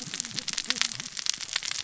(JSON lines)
{"label": "biophony, cascading saw", "recorder": "SoundTrap 600 or HydroMoth"}